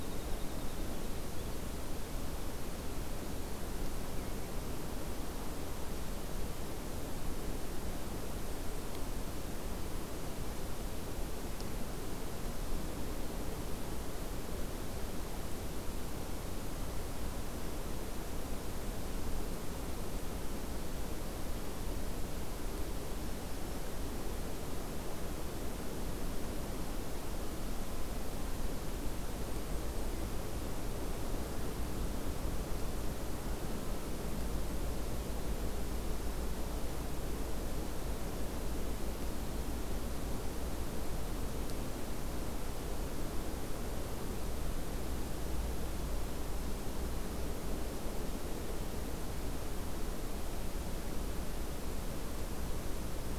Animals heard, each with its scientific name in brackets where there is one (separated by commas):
Winter Wren (Troglodytes hiemalis)